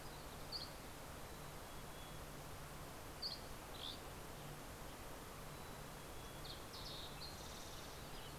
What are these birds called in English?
Dusky Flycatcher, Mountain Chickadee, Fox Sparrow